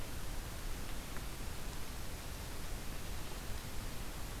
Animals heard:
forest ambience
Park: Marsh-Billings-Rockefeller National Historical Park